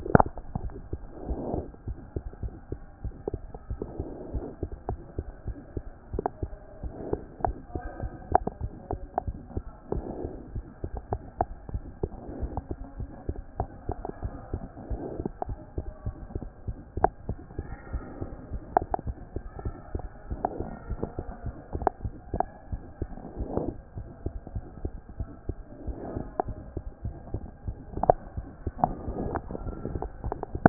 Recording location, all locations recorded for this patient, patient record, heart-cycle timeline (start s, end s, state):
mitral valve (MV)
aortic valve (AV)+mitral valve (MV)
#Age: Child
#Sex: Female
#Height: 77.0 cm
#Weight: 10.3 kg
#Pregnancy status: False
#Murmur: Present
#Murmur locations: aortic valve (AV)+mitral valve (MV)
#Most audible location: mitral valve (MV)
#Systolic murmur timing: Holosystolic
#Systolic murmur shape: Plateau
#Systolic murmur grading: I/VI
#Systolic murmur pitch: Low
#Systolic murmur quality: Harsh
#Diastolic murmur timing: nan
#Diastolic murmur shape: nan
#Diastolic murmur grading: nan
#Diastolic murmur pitch: nan
#Diastolic murmur quality: nan
#Outcome: Abnormal
#Campaign: 2014 screening campaign
0.00	0.16	S1
0.16	0.36	systole
0.36	0.44	S2
0.44	0.62	diastole
0.62	0.76	S1
0.76	0.90	systole
0.90	1.00	S2
1.00	1.24	diastole
1.24	1.38	S1
1.38	1.52	systole
1.52	1.66	S2
1.66	1.86	diastole
1.86	1.98	S1
1.98	2.12	systole
2.12	2.22	S2
2.22	2.42	diastole
2.42	2.54	S1
2.54	2.70	systole
2.70	2.82	S2
2.82	3.04	diastole
3.04	3.14	S1
3.14	3.28	systole
3.28	3.42	S2
3.42	3.68	diastole
3.68	3.80	S1
3.80	3.96	systole
3.96	4.10	S2
4.10	4.32	diastole
4.32	4.44	S1
4.44	4.62	systole
4.62	4.70	S2
4.70	4.90	diastole
4.90	5.00	S1
5.00	5.14	systole
5.14	5.26	S2
5.26	5.48	diastole
5.48	5.56	S1
5.56	5.72	systole
5.72	5.84	S2
5.84	6.10	diastole
6.10	6.26	S1
6.26	6.50	systole
6.50	6.58	S2
6.58	6.82	diastole
6.82	6.92	S1
6.92	7.08	systole
7.08	7.22	S2
7.22	7.44	diastole
7.44	7.56	S1
7.56	7.74	systole
7.74	7.82	S2
7.82	8.00	diastole
8.00	8.12	S1
8.12	8.30	systole
8.30	8.40	S2
8.40	8.58	diastole
8.58	8.72	S1
8.72	8.90	systole
8.90	9.00	S2
9.00	9.22	diastole
9.22	9.36	S1
9.36	9.58	systole
9.58	9.72	S2
9.72	9.92	diastole
9.92	10.06	S1
10.06	10.18	systole
10.18	10.32	S2
10.32	10.52	diastole
10.52	10.66	S1
10.66	10.82	systole
10.82	10.90	S2
10.90	11.10	diastole
11.10	11.22	S1
11.22	11.38	systole
11.38	11.48	S2
11.48	11.68	diastole
11.68	11.82	S1
11.82	11.98	systole
11.98	12.10	S2
12.10	12.36	diastole
12.36	12.52	S1
12.52	12.68	systole
12.68	12.78	S2
12.78	12.96	diastole
12.96	13.10	S1
13.10	13.26	systole
13.26	13.36	S2
13.36	13.58	diastole
13.58	13.68	S1
13.68	13.84	systole
13.84	13.96	S2
13.96	14.22	diastole
14.22	14.32	S1
14.32	14.50	systole
14.50	14.64	S2
14.64	14.86	diastole
14.86	15.00	S1
15.00	15.18	systole
15.18	15.30	S2
15.30	15.48	diastole
15.48	15.60	S1
15.60	15.76	systole
15.76	15.86	S2
15.86	16.04	diastole
16.04	16.16	S1
16.16	16.36	systole
16.36	16.50	S2
16.50	16.66	diastole
16.66	16.76	S1
16.76	16.96	systole
16.96	17.12	S2
17.12	17.28	diastole
17.28	17.40	S1
17.40	17.56	systole
17.56	17.70	S2
17.70	17.88	diastole
17.88	18.02	S1
18.02	18.20	systole
18.20	18.30	S2
18.30	18.52	diastole
18.52	18.62	S1
18.62	18.74	systole
18.74	18.88	S2
18.88	19.06	diastole
19.06	19.16	S1
19.16	19.34	systole
19.34	19.42	S2
19.42	19.62	diastole
19.62	19.76	S1
19.76	19.94	systole
19.94	20.10	S2
20.10	20.28	diastole
20.28	20.40	S1
20.40	20.54	systole
20.54	20.68	S2
20.68	20.86	diastole
20.86	21.00	S1
21.00	21.16	systole
21.16	21.26	S2
21.26	21.42	diastole
21.42	21.56	S1
21.56	21.74	systole
21.74	21.88	S2
21.88	22.04	diastole
22.04	22.18	S1
22.18	22.32	systole
22.32	22.48	S2
22.48	22.68	diastole
22.68	22.82	S1
22.82	23.00	systole
23.00	23.16	S2
23.16	23.36	diastole
23.36	23.50	S1
23.50	23.62	systole
23.62	23.76	S2
23.76	23.98	diastole
23.98	24.10	S1
24.10	24.24	systole
24.24	24.34	S2
24.34	24.54	diastole
24.54	24.64	S1
24.64	24.82	systole
24.82	24.92	S2
24.92	25.16	diastole
25.16	25.30	S1
25.30	25.50	systole
25.50	25.64	S2
25.64	25.86	diastole
25.86	25.98	S1
25.98	26.14	systole
26.14	26.28	S2
26.28	26.46	diastole
26.46	26.58	S1
26.58	26.74	systole
26.74	26.84	S2
26.84	27.04	diastole
27.04	27.16	S1
27.16	27.32	systole
27.32	27.48	S2
27.48	27.66	diastole
27.66	27.78	S1
27.78	28.00	systole
28.00	28.16	S2
28.16	28.36	diastole
28.36	28.46	S1
28.46	28.58	systole
28.58	28.62	S2
28.62	28.80	diastole
28.80	28.98	S1
28.98	29.18	systole
29.18	29.34	S2
29.34	29.56	diastole
29.56	29.74	S1
29.74	29.90	systole
29.90	30.04	S2
30.04	30.24	diastole
30.24	30.40	S1
30.40	30.56	systole
30.56	30.69	S2